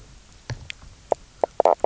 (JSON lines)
{"label": "biophony, knock croak", "recorder": "SoundTrap 300"}